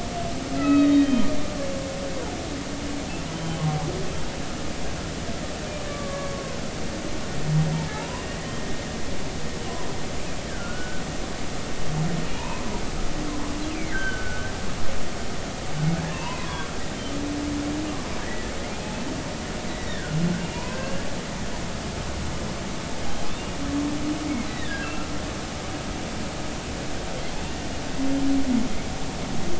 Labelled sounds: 0.6	1.3	humpback whale, 1.2 to 3.9 kHz
3.3	3.6	humpback whale, 3.0 to 3.2 kHz
5.9	6.6	humpback whale, 0.96 to 1.2 kHz
7.9	8.2	humpback whale, 0.80 to 1.1 kHz
10.5	11.0	humpback whale, 1.3 to 1.8 kHz
12.3	12.7	humpback whale, 0.86 to 2.6 kHz
13.7	14.5	humpback whale, 1.4 to 3.2 kHz
16.0	16.7	humpback whale, 0.86 to 3.1 kHz
18.2	18.5	humpback whale, 1.6 to 2.0 kHz
19.7	20.2	humpback whale, 1.3 to 2.0 kHz
20.4	20.8	humpback whale, 0.86 to 2.6 kHz
24.4	25.1	humpback whale, 1.2 to 4.1 kHz

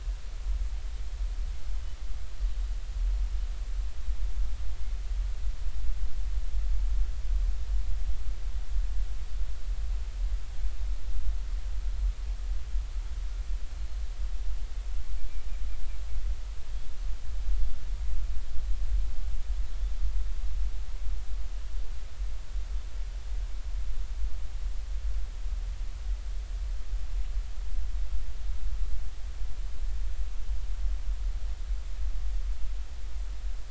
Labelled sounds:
13.7	14.0	Pacific white-sided dolphin, 4.2 to 4.3 kHz

